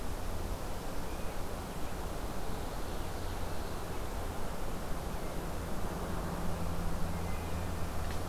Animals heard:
forest ambience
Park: Marsh-Billings-Rockefeller National Historical Park